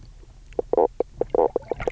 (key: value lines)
label: biophony, knock croak
recorder: SoundTrap 300